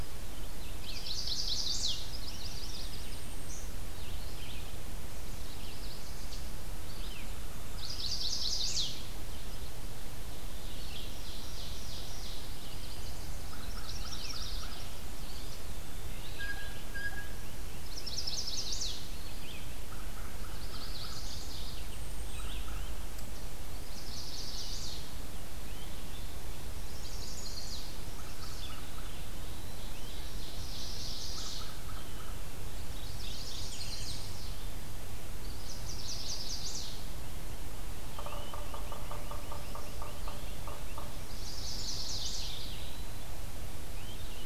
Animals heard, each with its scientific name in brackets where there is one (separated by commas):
Blue Jay (Cyanocitta cristata), Great Crested Flycatcher (Myiarchus crinitus), Blackburnian Warbler (Setophaga fusca), Yellow-bellied Sapsucker (Sphyrapicus varius), Golden-crowned Kinglet (Regulus satrapa), American Crow (Corvus brachyrhynchos), Ovenbird (Seiurus aurocapilla), Chestnut-sided Warbler (Setophaga pensylvanica), Eastern Wood-Pewee (Contopus virens), Mourning Warbler (Geothlypis philadelphia), Red-eyed Vireo (Vireo olivaceus)